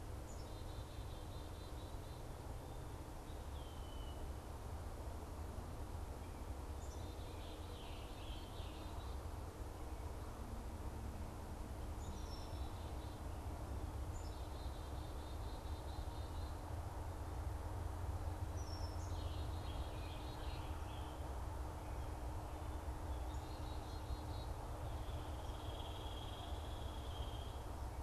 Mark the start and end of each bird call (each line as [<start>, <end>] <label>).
[0.00, 2.20] Black-capped Chickadee (Poecile atricapillus)
[3.30, 4.30] Red-winged Blackbird (Agelaius phoeniceus)
[6.90, 9.10] Scarlet Tanager (Piranga olivacea)
[11.80, 16.70] Black-capped Chickadee (Poecile atricapillus)
[18.40, 20.40] Black-capped Chickadee (Poecile atricapillus)
[19.00, 21.30] Scarlet Tanager (Piranga olivacea)
[22.70, 24.60] Black-capped Chickadee (Poecile atricapillus)
[24.90, 27.70] Hairy Woodpecker (Dryobates villosus)